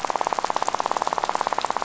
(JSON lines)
{"label": "biophony, rattle", "recorder": "SoundTrap 500"}